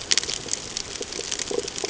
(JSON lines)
{"label": "ambient", "recorder": "HydroMoth"}